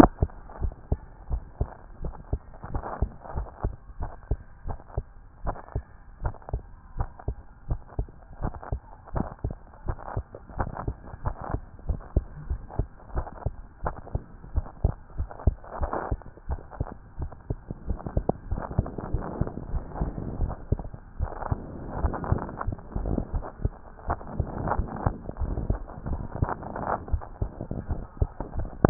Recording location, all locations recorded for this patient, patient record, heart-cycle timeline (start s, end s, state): tricuspid valve (TV)
aortic valve (AV)+pulmonary valve (PV)+tricuspid valve (TV)+mitral valve (MV)
#Age: Child
#Sex: Male
#Height: 133.0 cm
#Weight: 23.3 kg
#Pregnancy status: False
#Murmur: Absent
#Murmur locations: nan
#Most audible location: nan
#Systolic murmur timing: nan
#Systolic murmur shape: nan
#Systolic murmur grading: nan
#Systolic murmur pitch: nan
#Systolic murmur quality: nan
#Diastolic murmur timing: nan
#Diastolic murmur shape: nan
#Diastolic murmur grading: nan
#Diastolic murmur pitch: nan
#Diastolic murmur quality: nan
#Outcome: Normal
#Campaign: 2014 screening campaign
0.00	0.47	unannotated
0.47	0.60	diastole
0.60	0.72	S1
0.72	0.90	systole
0.90	1.00	S2
1.00	1.30	diastole
1.30	1.42	S1
1.42	1.60	systole
1.60	1.68	S2
1.68	2.02	diastole
2.02	2.14	S1
2.14	2.32	systole
2.32	2.40	S2
2.40	2.72	diastole
2.72	2.84	S1
2.84	3.00	systole
3.00	3.10	S2
3.10	3.36	diastole
3.36	3.48	S1
3.48	3.64	systole
3.64	3.74	S2
3.74	4.00	diastole
4.00	4.10	S1
4.10	4.30	systole
4.30	4.40	S2
4.40	4.66	diastole
4.66	4.78	S1
4.78	4.96	systole
4.96	5.04	S2
5.04	5.44	diastole
5.44	5.56	S1
5.56	5.74	systole
5.74	5.84	S2
5.84	6.22	diastole
6.22	6.34	S1
6.34	6.52	systole
6.52	6.62	S2
6.62	6.98	diastole
6.98	7.08	S1
7.08	7.26	systole
7.26	7.36	S2
7.36	7.68	diastole
7.68	7.80	S1
7.80	7.98	systole
7.98	8.08	S2
8.08	8.42	diastole
8.42	8.54	S1
8.54	8.70	systole
8.70	8.80	S2
8.80	9.14	diastole
9.14	9.28	S1
9.28	9.44	systole
9.44	9.54	S2
9.54	9.86	diastole
9.86	9.98	S1
9.98	10.16	systole
10.16	10.24	S2
10.24	10.58	diastole
10.58	10.70	S1
10.70	10.86	systole
10.86	10.96	S2
10.96	11.24	diastole
11.24	11.36	S1
11.36	11.52	systole
11.52	11.62	S2
11.62	11.88	diastole
11.88	12.00	S1
12.00	12.14	systole
12.14	12.24	S2
12.24	12.50	diastole
12.50	12.60	S1
12.60	12.78	systole
12.78	12.88	S2
12.88	13.14	diastole
13.14	13.26	S1
13.26	13.44	systole
13.44	13.54	S2
13.54	13.84	diastole
13.84	13.94	S1
13.94	14.12	systole
14.12	14.22	S2
14.22	14.54	diastole
14.54	14.66	S1
14.66	14.82	systole
14.82	14.94	S2
14.94	15.18	diastole
15.18	15.30	S1
15.30	15.46	systole
15.46	15.56	S2
15.56	15.80	diastole
15.80	15.92	S1
15.92	16.10	systole
16.10	16.20	S2
16.20	16.48	diastole
16.48	16.60	S1
16.60	16.78	systole
16.78	16.88	S2
16.88	17.20	diastole
17.20	17.30	S1
17.30	17.48	systole
17.48	17.58	S2
17.58	17.88	diastole
17.88	28.90	unannotated